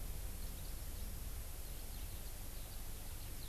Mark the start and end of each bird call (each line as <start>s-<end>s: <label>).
1.6s-3.5s: Eurasian Skylark (Alauda arvensis)